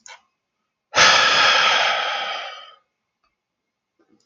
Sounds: Sigh